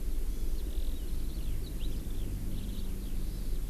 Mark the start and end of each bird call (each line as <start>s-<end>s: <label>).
0.0s-3.7s: Eurasian Skylark (Alauda arvensis)
0.3s-0.6s: Hawaii Amakihi (Chlorodrepanis virens)
3.1s-3.5s: Hawaii Amakihi (Chlorodrepanis virens)